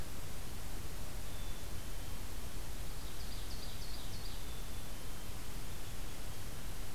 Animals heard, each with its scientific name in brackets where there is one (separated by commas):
Black-capped Chickadee (Poecile atricapillus), Ovenbird (Seiurus aurocapilla)